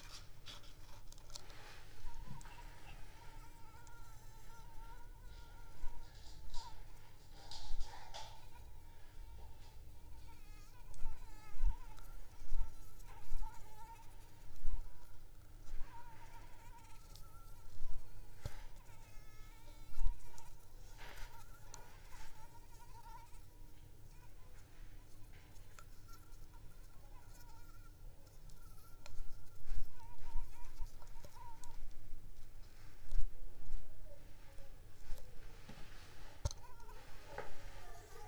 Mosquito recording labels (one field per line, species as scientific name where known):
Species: Anopheles arabiensis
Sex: female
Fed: unfed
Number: one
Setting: cup